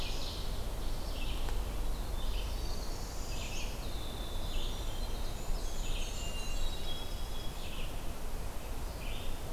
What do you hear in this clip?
Red-eyed Vireo, Winter Wren, Northern Parula, Blackburnian Warbler, Hermit Thrush